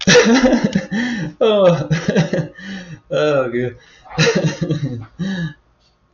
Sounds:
Laughter